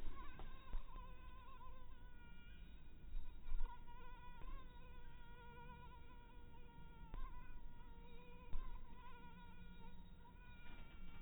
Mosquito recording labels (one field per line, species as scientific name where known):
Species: mosquito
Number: one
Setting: cup